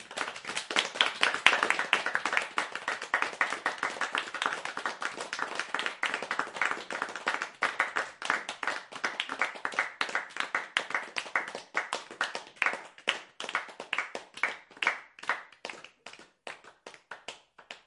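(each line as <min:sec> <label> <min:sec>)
0:00.0 Multiple people are clapping continuously. 0:17.9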